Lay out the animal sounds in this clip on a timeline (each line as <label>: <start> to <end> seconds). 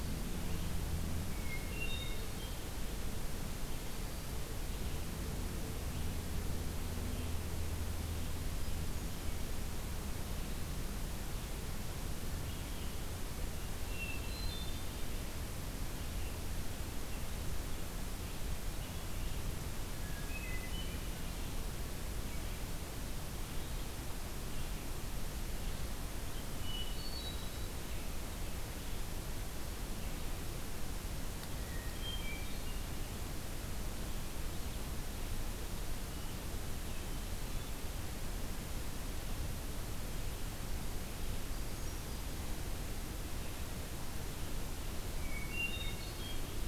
Hermit Thrush (Catharus guttatus): 1.1 to 2.8 seconds
Hermit Thrush (Catharus guttatus): 13.8 to 15.2 seconds
Hermit Thrush (Catharus guttatus): 19.8 to 21.4 seconds
Hermit Thrush (Catharus guttatus): 26.6 to 27.9 seconds
Hermit Thrush (Catharus guttatus): 31.5 to 32.8 seconds
Hermit Thrush (Catharus guttatus): 41.4 to 42.3 seconds
Hermit Thrush (Catharus guttatus): 45.1 to 46.7 seconds